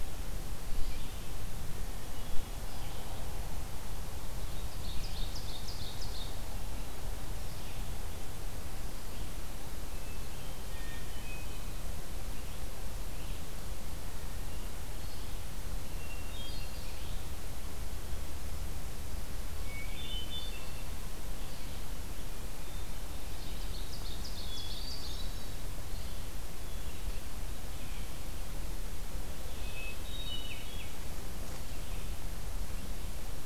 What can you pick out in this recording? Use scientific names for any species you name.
Seiurus aurocapilla, Catharus guttatus